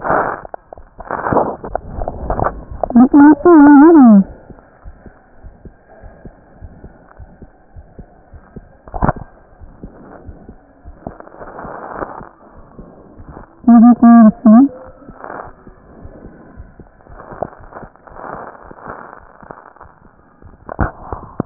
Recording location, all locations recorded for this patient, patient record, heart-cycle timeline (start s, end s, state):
aortic valve (AV)
aortic valve (AV)+pulmonary valve (PV)+tricuspid valve (TV)+mitral valve (MV)
#Age: Child
#Sex: Male
#Height: 119.0 cm
#Weight: 23.8 kg
#Pregnancy status: False
#Murmur: Absent
#Murmur locations: nan
#Most audible location: nan
#Systolic murmur timing: nan
#Systolic murmur shape: nan
#Systolic murmur grading: nan
#Systolic murmur pitch: nan
#Systolic murmur quality: nan
#Diastolic murmur timing: nan
#Diastolic murmur shape: nan
#Diastolic murmur grading: nan
#Diastolic murmur pitch: nan
#Diastolic murmur quality: nan
#Outcome: Normal
#Campaign: 2015 screening campaign
0.00	4.58	unannotated
4.58	4.82	diastole
4.82	4.93	S1
4.93	5.03	systole
5.03	5.13	S2
5.13	5.40	diastole
5.40	5.54	S1
5.54	5.62	systole
5.62	5.74	S2
5.74	6.02	diastole
6.02	6.14	S1
6.14	6.22	systole
6.22	6.32	S2
6.32	6.60	diastole
6.60	6.74	S1
6.74	6.82	systole
6.82	6.92	S2
6.92	7.18	diastole
7.18	7.32	S1
7.32	7.40	systole
7.40	7.50	S2
7.50	7.74	diastole
7.74	7.88	S1
7.88	7.96	systole
7.96	8.06	S2
8.06	8.32	diastole
8.32	8.44	S1
8.44	8.54	systole
8.54	8.64	S2
8.64	8.80	diastole
8.80	21.46	unannotated